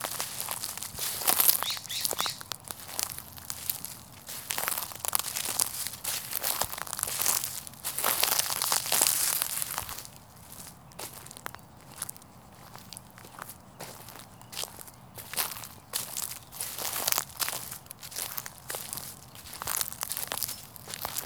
Are the leaves and debris on the ground dry?
yes